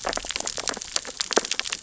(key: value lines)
label: biophony, sea urchins (Echinidae)
recorder: SoundTrap 600 or HydroMoth